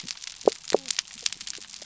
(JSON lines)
{"label": "biophony", "recorder": "SoundTrap 300"}